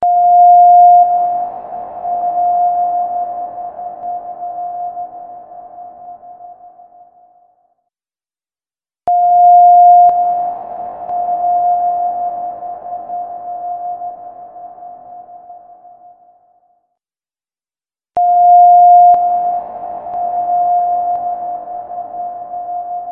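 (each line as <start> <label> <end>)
0.0 A siren is whistling loudly. 1.1
1.1 A siren echoes and slowly fades away. 7.6
9.1 A siren is whistling loudly. 10.1
10.1 A siren echoes and slowly fades away. 16.6
18.1 A siren is whistling loudly. 19.2
19.2 A siren echoes and slowly fades away. 23.1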